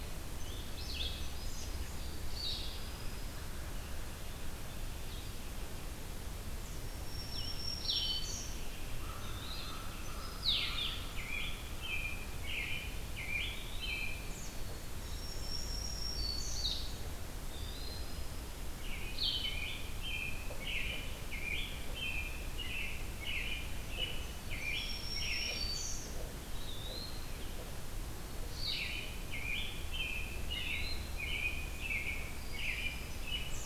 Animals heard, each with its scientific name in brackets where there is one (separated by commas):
Eastern Wood-Pewee (Contopus virens), Black-and-white Warbler (Mniotilta varia), American Crow (Corvus brachyrhynchos), Black-throated Green Warbler (Setophaga virens), American Robin (Turdus migratorius), Song Sparrow (Melospiza melodia), Blue-headed Vireo (Vireo solitarius)